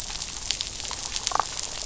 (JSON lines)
{"label": "biophony, damselfish", "recorder": "SoundTrap 500"}